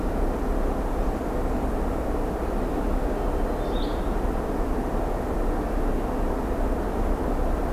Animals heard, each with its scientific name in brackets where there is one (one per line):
Blue-headed Vireo (Vireo solitarius)
Hermit Thrush (Catharus guttatus)